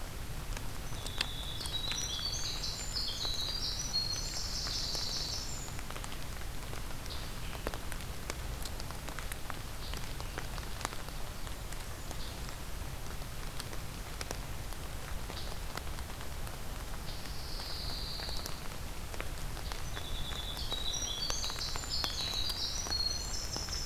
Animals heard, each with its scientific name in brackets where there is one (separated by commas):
Scarlet Tanager (Piranga olivacea), Winter Wren (Troglodytes hiemalis), Pine Warbler (Setophaga pinus)